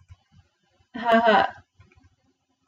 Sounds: Laughter